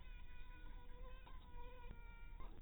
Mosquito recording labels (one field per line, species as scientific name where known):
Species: mosquito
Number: one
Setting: cup